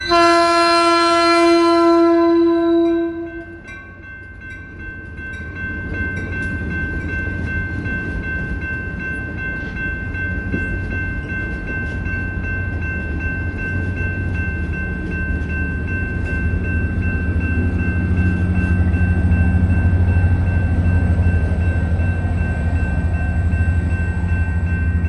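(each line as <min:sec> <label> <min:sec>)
0:00.0 A train horn is blasting. 0:03.2
0:03.1 Bells chime repeatedly. 0:25.0
0:18.1 A vehicle passes by in the distance. 0:24.7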